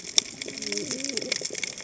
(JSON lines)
{"label": "biophony, cascading saw", "recorder": "HydroMoth"}